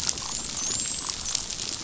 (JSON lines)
{"label": "biophony, dolphin", "recorder": "SoundTrap 500"}